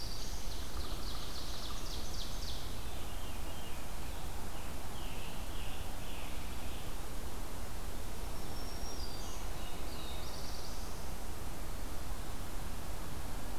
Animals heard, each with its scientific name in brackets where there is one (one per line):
Black-throated Blue Warbler (Setophaga caerulescens)
Scarlet Tanager (Piranga olivacea)
Black-throated Green Warbler (Setophaga virens)
Veery (Catharus fuscescens)
Ovenbird (Seiurus aurocapilla)